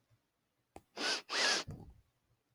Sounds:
Sniff